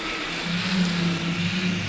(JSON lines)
{"label": "anthrophony, boat engine", "recorder": "SoundTrap 500"}